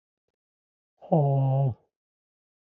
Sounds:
Sigh